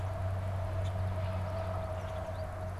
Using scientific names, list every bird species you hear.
Spinus tristis, Quiscalus quiscula